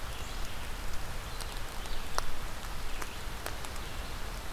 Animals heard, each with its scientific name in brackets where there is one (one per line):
Red-eyed Vireo (Vireo olivaceus)